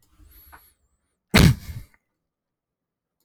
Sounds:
Sneeze